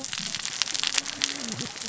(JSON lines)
{"label": "biophony, cascading saw", "recorder": "SoundTrap 600 or HydroMoth"}